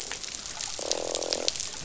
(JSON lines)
{"label": "biophony, croak", "recorder": "SoundTrap 500"}